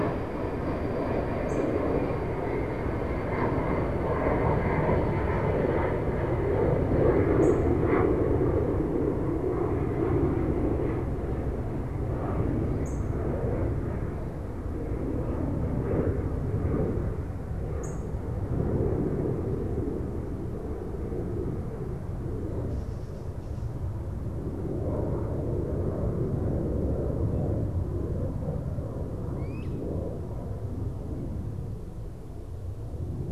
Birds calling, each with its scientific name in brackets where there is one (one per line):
Great Crested Flycatcher (Myiarchus crinitus)
unidentified bird